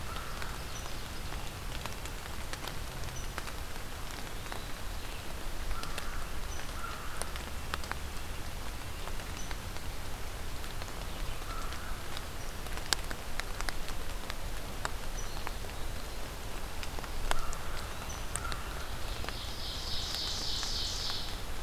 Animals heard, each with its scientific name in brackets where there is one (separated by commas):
Ovenbird (Seiurus aurocapilla), American Crow (Corvus brachyrhynchos)